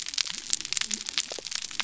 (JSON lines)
{"label": "biophony", "recorder": "SoundTrap 300"}